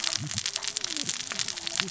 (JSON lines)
{"label": "biophony, cascading saw", "recorder": "SoundTrap 600 or HydroMoth"}